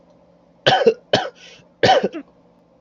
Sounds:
Cough